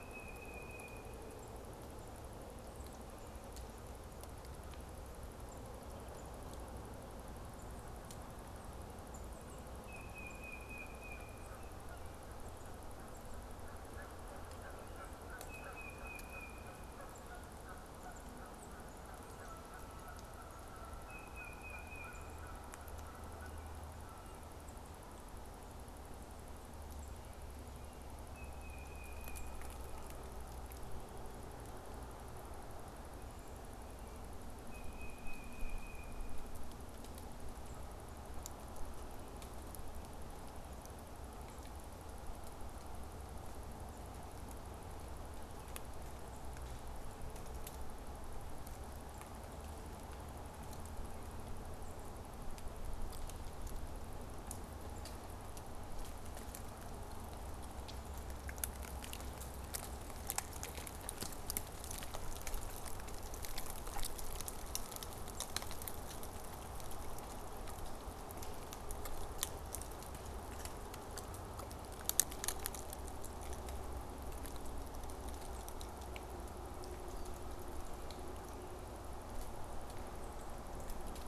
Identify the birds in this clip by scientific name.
Baeolophus bicolor, Branta canadensis